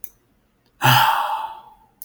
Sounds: Sigh